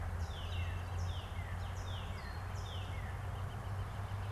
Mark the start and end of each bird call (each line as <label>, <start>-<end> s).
Northern Cardinal (Cardinalis cardinalis), 0.0-3.2 s
Northern Flicker (Colaptes auratus), 0.0-4.3 s